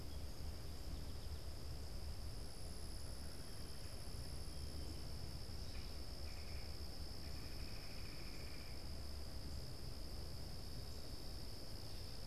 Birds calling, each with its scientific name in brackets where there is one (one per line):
Red-bellied Woodpecker (Melanerpes carolinus)